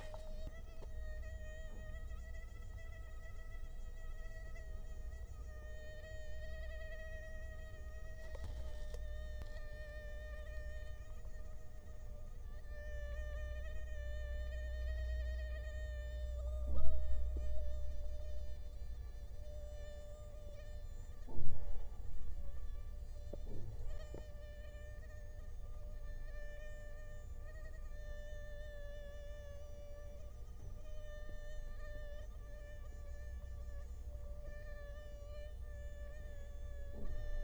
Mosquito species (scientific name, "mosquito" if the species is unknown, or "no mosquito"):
Culex quinquefasciatus